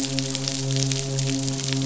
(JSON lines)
{"label": "biophony, midshipman", "recorder": "SoundTrap 500"}